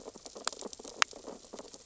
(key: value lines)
label: biophony, sea urchins (Echinidae)
recorder: SoundTrap 600 or HydroMoth